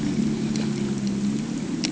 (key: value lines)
label: ambient
recorder: HydroMoth